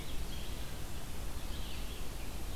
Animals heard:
Red-eyed Vireo (Vireo olivaceus)

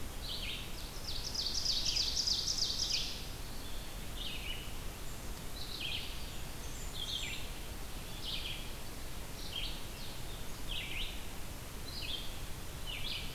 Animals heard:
Ovenbird (Seiurus aurocapilla), Blackburnian Warbler (Setophaga fusca), Red-eyed Vireo (Vireo olivaceus), Blue-headed Vireo (Vireo solitarius), Eastern Wood-Pewee (Contopus virens)

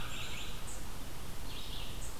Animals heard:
American Crow (Corvus brachyrhynchos), Black-capped Chickadee (Poecile atricapillus), Red-eyed Vireo (Vireo olivaceus), unknown mammal

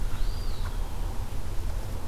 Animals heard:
Eastern Wood-Pewee (Contopus virens)

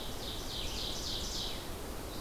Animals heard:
Red-eyed Vireo (Vireo olivaceus), Ovenbird (Seiurus aurocapilla)

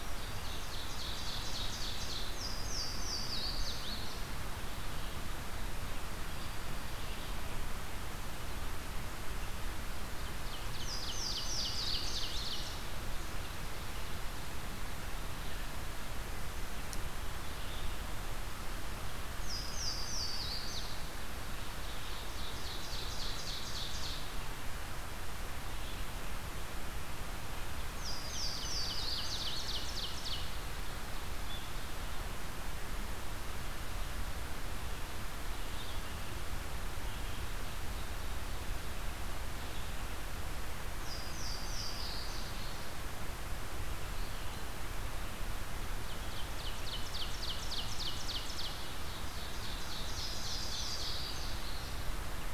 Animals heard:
Ovenbird (Seiurus aurocapilla), Black-throated Green Warbler (Setophaga virens), Louisiana Waterthrush (Parkesia motacilla), Red-eyed Vireo (Vireo olivaceus)

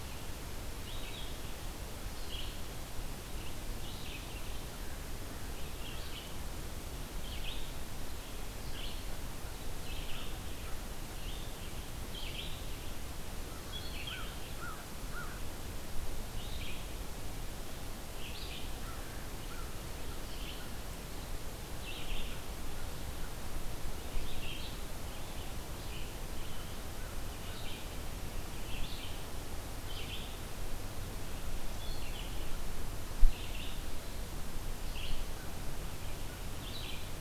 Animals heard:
American Crow (Corvus brachyrhynchos), Red-eyed Vireo (Vireo olivaceus)

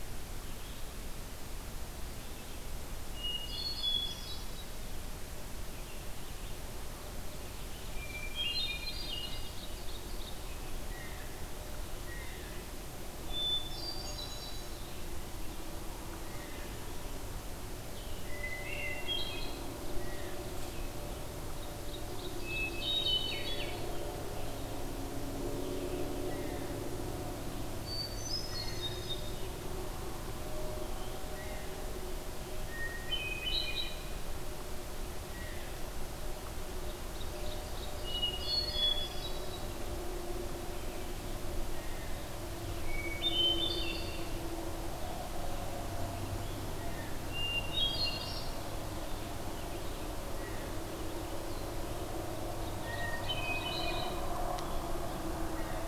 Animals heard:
Ovenbird (Seiurus aurocapilla), Blue Jay (Cyanocitta cristata), Hermit Thrush (Catharus guttatus)

